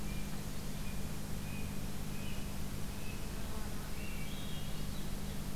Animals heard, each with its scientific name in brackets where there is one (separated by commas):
Blue Jay (Cyanocitta cristata), Swainson's Thrush (Catharus ustulatus)